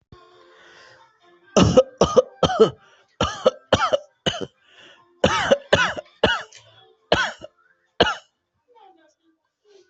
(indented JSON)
{
  "expert_labels": [
    {
      "quality": "good",
      "cough_type": "dry",
      "dyspnea": false,
      "wheezing": false,
      "stridor": false,
      "choking": false,
      "congestion": false,
      "nothing": true,
      "diagnosis": "obstructive lung disease",
      "severity": "severe"
    }
  ],
  "age": 36,
  "gender": "male",
  "respiratory_condition": true,
  "fever_muscle_pain": true,
  "status": "COVID-19"
}